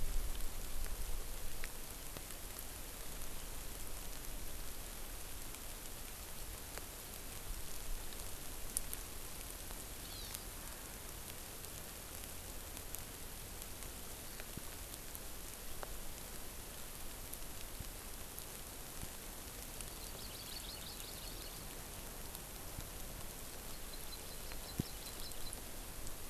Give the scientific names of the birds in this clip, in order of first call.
Chlorodrepanis virens